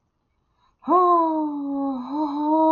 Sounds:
Sigh